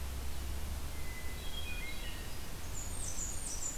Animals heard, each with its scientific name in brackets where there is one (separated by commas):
Hermit Thrush (Catharus guttatus), Blackburnian Warbler (Setophaga fusca)